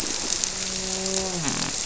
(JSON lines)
{"label": "biophony, grouper", "recorder": "SoundTrap 300"}